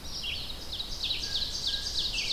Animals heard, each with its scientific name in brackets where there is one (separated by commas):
Ovenbird (Seiurus aurocapilla), Red-eyed Vireo (Vireo olivaceus)